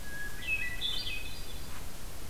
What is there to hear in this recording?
Hermit Thrush